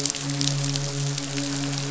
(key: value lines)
label: biophony, midshipman
recorder: SoundTrap 500